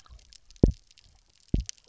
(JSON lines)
{"label": "biophony, double pulse", "recorder": "SoundTrap 300"}